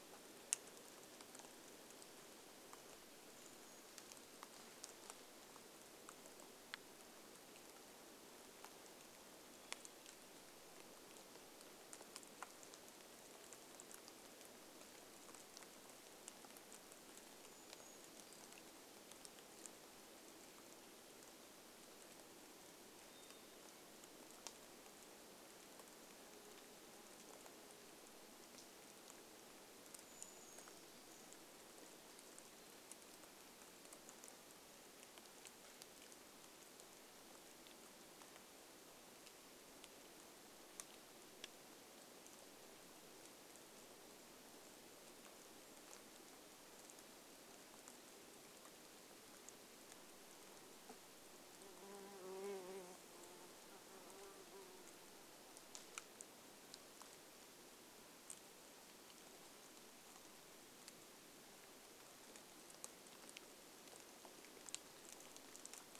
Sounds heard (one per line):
Brown Creeper song
insect buzz
Black-capped Chickadee song
rain